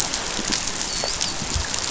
{"label": "biophony, dolphin", "recorder": "SoundTrap 500"}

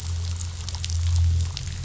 {"label": "anthrophony, boat engine", "recorder": "SoundTrap 500"}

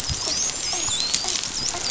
{"label": "biophony, dolphin", "recorder": "SoundTrap 500"}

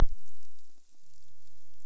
{"label": "biophony", "recorder": "SoundTrap 300"}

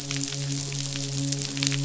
{"label": "biophony, midshipman", "recorder": "SoundTrap 500"}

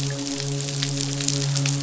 {"label": "biophony, midshipman", "recorder": "SoundTrap 500"}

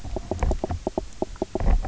{"label": "biophony, knock croak", "recorder": "SoundTrap 300"}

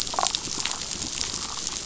{"label": "biophony, damselfish", "recorder": "SoundTrap 500"}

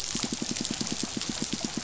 {"label": "biophony, pulse", "recorder": "SoundTrap 500"}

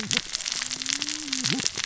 {"label": "biophony, cascading saw", "recorder": "SoundTrap 600 or HydroMoth"}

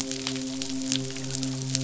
{"label": "biophony, midshipman", "recorder": "SoundTrap 500"}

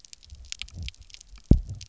{"label": "biophony, double pulse", "recorder": "SoundTrap 300"}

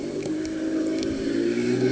{"label": "anthrophony, boat engine", "recorder": "HydroMoth"}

